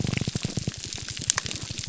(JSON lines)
{"label": "biophony, grouper groan", "recorder": "SoundTrap 300"}